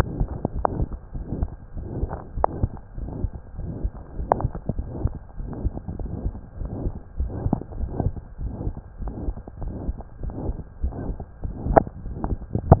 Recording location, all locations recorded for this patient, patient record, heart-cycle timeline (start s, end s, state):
mitral valve (MV)
aortic valve (AV)+pulmonary valve (PV)+tricuspid valve (TV)+mitral valve (MV)
#Age: Child
#Sex: Male
#Height: 111.0 cm
#Weight: 18.5 kg
#Pregnancy status: False
#Murmur: Present
#Murmur locations: aortic valve (AV)+mitral valve (MV)+pulmonary valve (PV)+tricuspid valve (TV)
#Most audible location: pulmonary valve (PV)
#Systolic murmur timing: Mid-systolic
#Systolic murmur shape: Diamond
#Systolic murmur grading: III/VI or higher
#Systolic murmur pitch: High
#Systolic murmur quality: Harsh
#Diastolic murmur timing: nan
#Diastolic murmur shape: nan
#Diastolic murmur grading: nan
#Diastolic murmur pitch: nan
#Diastolic murmur quality: nan
#Outcome: Abnormal
#Campaign: 2015 screening campaign
0.00	0.16	unannotated
0.16	0.28	S2
0.28	0.51	diastole
0.51	0.66	S1
0.66	0.74	systole
0.74	0.90	S2
0.90	1.12	diastole
1.12	1.26	S1
1.26	1.38	systole
1.38	1.50	S2
1.50	1.74	diastole
1.74	1.88	S1
1.88	1.96	systole
1.96	2.10	S2
2.10	2.36	diastole
2.36	2.48	S1
2.48	2.60	systole
2.60	2.70	S2
2.70	2.98	diastole
2.98	3.10	S1
3.10	3.20	systole
3.20	3.30	S2
3.30	3.55	diastole
3.55	3.69	S1
3.69	3.82	systole
3.82	3.92	S2
3.92	4.18	diastole
4.18	4.30	S1
4.30	4.42	systole
4.42	4.52	S2
4.52	4.74	diastole
4.74	4.90	S1
4.90	5.00	systole
5.00	5.14	S2
5.14	5.34	diastole
5.34	5.49	S1
5.49	5.62	systole
5.62	5.74	S2
5.74	6.00	diastole
6.00	6.12	S1
6.12	6.22	systole
6.22	6.34	S2
6.34	6.58	diastole
6.58	6.72	S1
6.72	6.83	systole
6.83	6.94	S2
6.94	7.18	diastole
7.18	7.32	S1
7.32	7.42	systole
7.42	7.50	S2
7.50	7.78	diastole
7.78	7.90	S1
7.90	8.01	systole
8.01	8.14	S2
8.14	8.42	diastole
8.42	8.54	S1
8.54	8.64	systole
8.64	8.74	S2
8.74	9.00	diastole
9.00	9.12	S1
9.12	9.22	systole
9.22	9.34	S2
9.34	9.62	diastole
9.62	9.74	S1
9.74	9.86	systole
9.86	9.98	S2
9.98	10.24	diastole
10.24	10.34	S1
10.34	10.42	systole
10.42	10.56	S2
10.56	10.82	diastole
10.82	10.94	S1
10.94	11.06	systole
11.06	11.16	S2
11.16	11.41	diastole
11.41	11.54	S1
11.54	12.80	unannotated